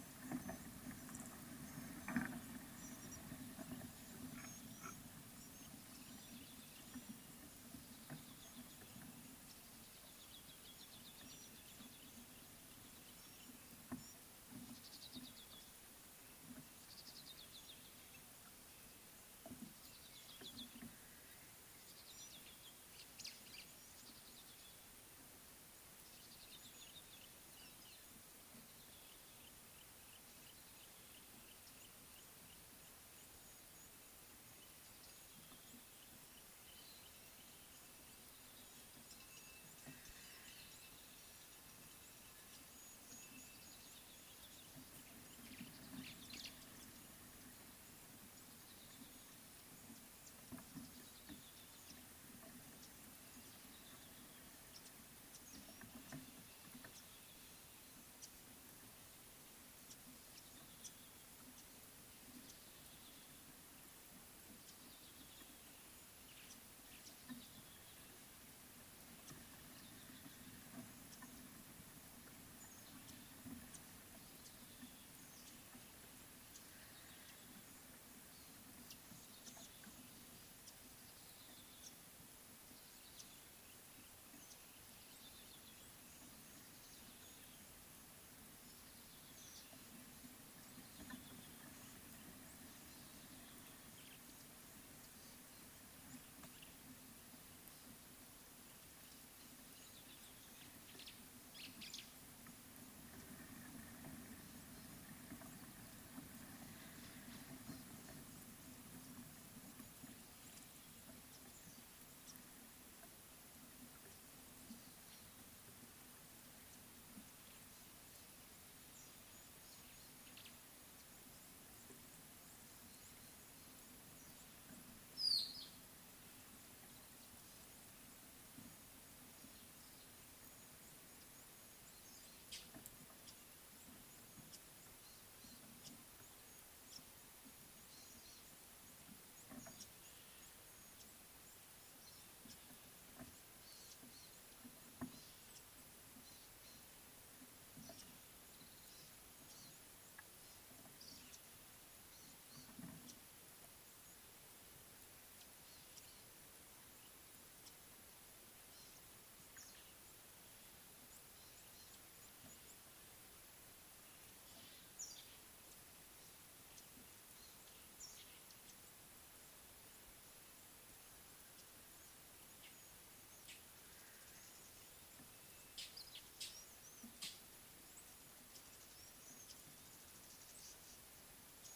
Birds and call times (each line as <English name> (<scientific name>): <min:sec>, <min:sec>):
Red-backed Scrub-Robin (Cercotrichas leucophrys): 0:15.0, 0:17.2, 0:20.4
White-browed Sparrow-Weaver (Plocepasser mahali): 0:23.2, 0:46.1, 1:41.6
Mocking Cliff-Chat (Thamnolaea cinnamomeiventris): 2:05.3
Eastern Violet-backed Sunbird (Anthreptes orientalis): 2:29.6, 2:32.6
Somali Tit (Melaniparus thruppi): 2:45.1, 2:48.0